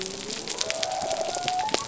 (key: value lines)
label: biophony
recorder: SoundTrap 300